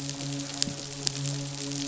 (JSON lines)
{"label": "biophony, midshipman", "recorder": "SoundTrap 500"}